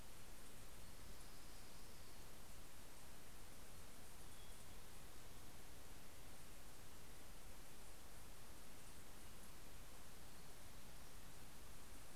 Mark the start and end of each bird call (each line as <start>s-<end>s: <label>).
0.0s-2.7s: Orange-crowned Warbler (Leiothlypis celata)